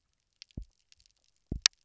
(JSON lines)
{"label": "biophony, double pulse", "recorder": "SoundTrap 300"}